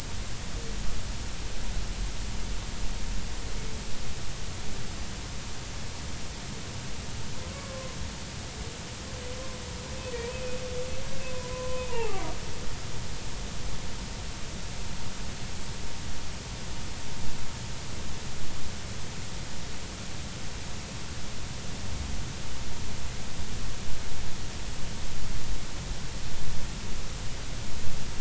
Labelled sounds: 7.4	8.0	humpback whale, 0.99 to 1.2 kHz
10.3	10.6	humpback whale, 2.5 to 2.6 kHz
11.3	12.3	humpback whale, 0.80 to 1.1 kHz

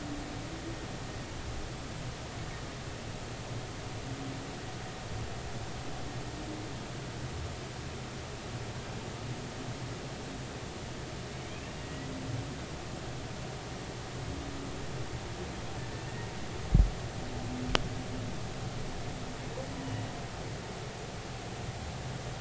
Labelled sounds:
11.8	12.1	humpback whale, 1.9 to 2.0 kHz

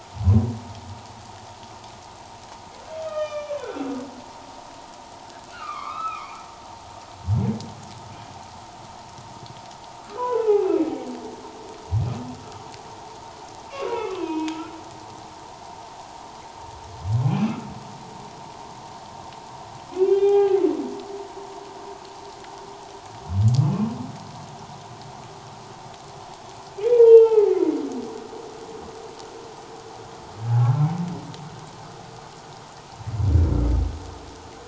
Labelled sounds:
3.0	3.9	humpback whale, 0.97 to 6.1 kHz
5.5	6.4	humpback whale, 1.0 to 4.0 kHz
10.2	11.1	humpback whale, 0.78 to 2.8 kHz
13.7	14.6	humpback whale, 0.88 to 3.3 kHz
17.2	17.6	humpback whale, 2.2 to 2.8 kHz
19.9	20.6	humpback whale, 0.78 to 3.7 kHz
23.6	23.9	humpback whale, 2.4 to 2.7 kHz
26.9	27.8	humpback whale, 0.78 to 3.2 kHz
30.6	30.9	humpback whale, 1.2 to 1.4 kHz

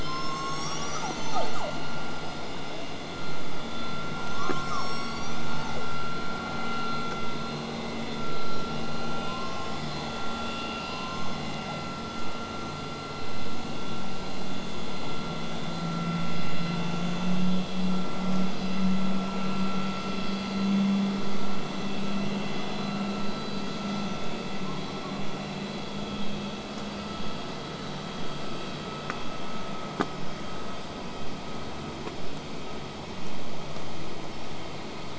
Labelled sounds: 0.0	1.7	killer whale, southern resident, call S01, 0.42 to 8.0 kHz
4.3	5.9	killer whale, southern resident, call S01, 0.69 to 8.0 kHz

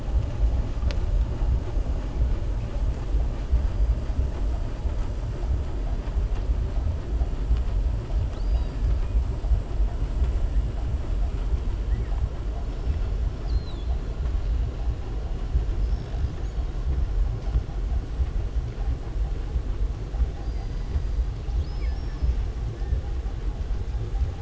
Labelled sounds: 8.2	8.8	killer whale, southern resident, 2.5 to 5.2 kHz
20.3	21.0	killer whale, southern resident, 3.9 to 5.0 kHz

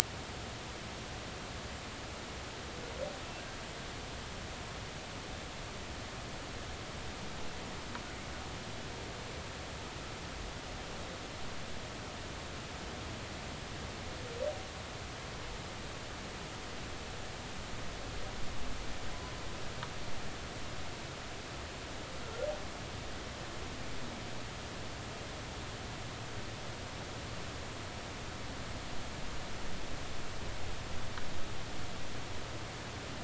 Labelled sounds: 22.2	22.5	humpback whale, 1.3 to 1.4 kHz

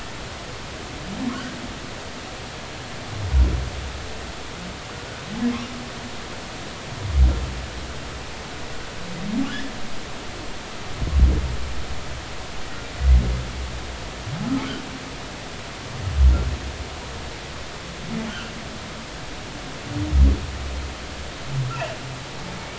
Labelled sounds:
21.7	22.7	humpback whale, 2.2 to 2.8 kHz

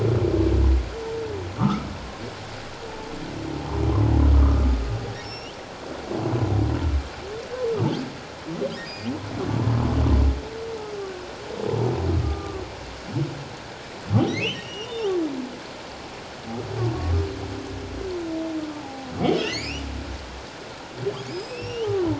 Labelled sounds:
1.5	1.9	humpback whale, 1.1 to 1.4 kHz
4.3	4.6	humpback whale, 1.1 to 1.3 kHz
5.2	5.6	humpback whale, 2.7 to 5.8 kHz
8.8	9.1	humpback whale, 4.5 to 5.0 kHz
12.2	12.6	humpback whale, 1.1 to 1.2 kHz
14.4	15.1	humpback whale, 2.4 to 3.8 kHz
18.7	19.9	humpback whale, 0.78 to 7.2 kHz
21.3	22.1	humpback whale, 0.84 to 5.7 kHz

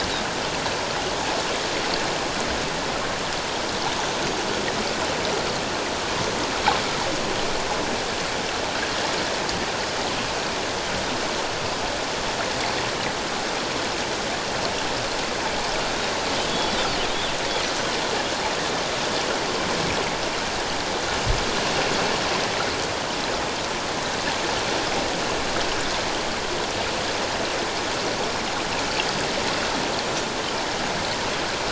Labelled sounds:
16.5	16.9	Pacific white-sided dolphin, 3.3 to 3.8 kHz

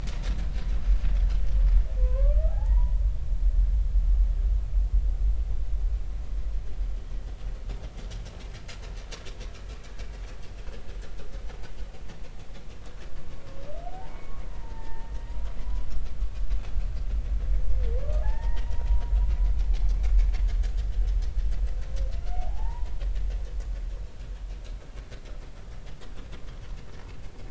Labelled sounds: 2.0	3.0	humpback whale, 0.80 to 1.7 kHz
13.9	15.1	humpback whale, 0.80 to 2.3 kHz
15.6	15.9	humpback whale, 0.96 to 1.1 kHz
18.2	19.1	humpback whale, 0.80 to 2.0 kHz
22.3	22.9	humpback whale, 0.80 to 1.0 kHz

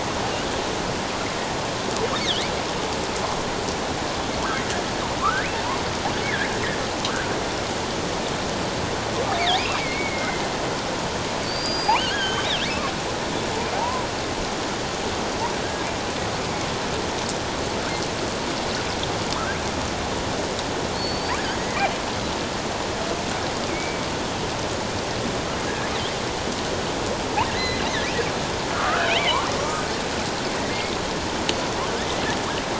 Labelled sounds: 2.2	2.5	killer whale, offshore, 2.9 to 4.2 kHz
5.2	5.5	killer whale, offshore, 1.0 to 1.8 kHz
6.2	6.5	killer whale, offshore, 1.5 to 2.3 kHz
7.0	7.3	killer whale, offshore, 1.0 to 1.7 kHz
9.8	10.4	killer whale, offshore, 2.0 to 2.3 kHz
11.4	12.5	killer whale, offshore, 1.4 to 6.6 kHz
13.8	14.1	killer whale, offshore, 0.78 to 1.1 kHz
20.9	21.4	killer whale, offshore, 4.2 to 4.7 kHz
23.7	24.0	killer whale, offshore, 2.2 to 2.5 kHz
27.5	27.8	killer whale, offshore, 1.8 to 4.1 kHz
28.7	29.8	killer whale, offshore, 1.0 to 2.4 kHz
30.7	31.0	killer whale, offshore, 2.0 to 2.2 kHz

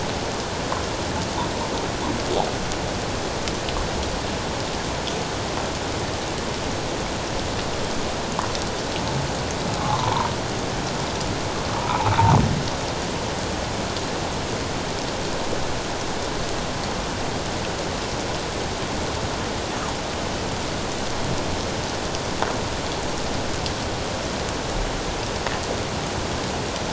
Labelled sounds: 9.8	10.3	humpback whale, 0.84 to 1.2 kHz
11.8	12.1	humpback whale, 0.78 to 1.4 kHz

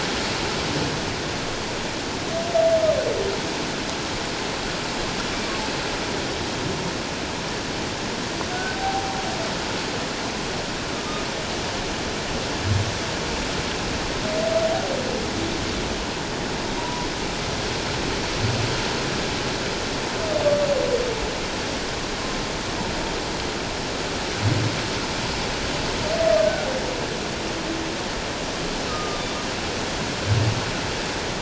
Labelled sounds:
8.5	9.2	humpback whale, 0.78 to 1.6 kHz
16.8	17.1	humpback whale, 0.91 to 1.0 kHz
26.4	26.7	humpback whale, 1.4 to 1.6 kHz
28.9	29.2	humpback whale, 1.2 to 1.3 kHz

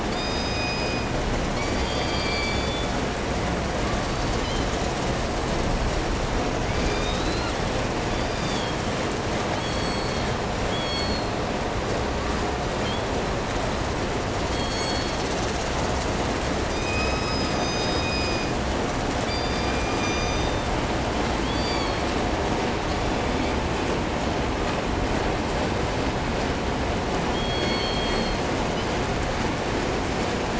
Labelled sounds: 0.1	1.2	killer whale, southern resident, call S17, 2.0 to 8.0 kHz
1.5	3.0	killer whale, southern resident, 0.94 to 8.0 kHz
3.8	4.8	killer whale, southern resident, call S16, 0.78 to 8.0 kHz
6.4	7.7	killer whale, southern resident, 0.88 to 7.6 kHz
8.0	8.9	killer whale, southern resident, 0.90 to 6.2 kHz
9.5	11.5	killer whale, southern resident, call S16, 1.9 to 8.0 kHz
12.8	13.1	killer whale, southern resident, call S16, 1.7 to 4.7 kHz
14.4	15.4	killer whale, southern resident, call S16, 1.7 to 8.0 kHz
16.8	18.6	killer whale, southern resident, call S17, 0.90 to 8.0 kHz
19.2	20.8	killer whale, southern resident, call S16, 0.96 to 8.0 kHz
21.4	22.1	killer whale, southern resident, 1.4 to 7.2 kHz
22.8	23.6	killer whale, 1.9 to 8.0 kHz
27.3	29.1	killer whale, southern resident, call S16, 1.6 to 8.0 kHz

